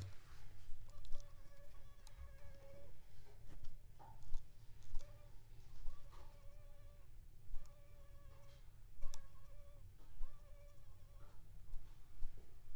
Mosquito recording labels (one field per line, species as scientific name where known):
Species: Aedes aegypti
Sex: female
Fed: unfed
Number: one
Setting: cup